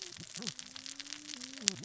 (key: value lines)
label: biophony, cascading saw
recorder: SoundTrap 600 or HydroMoth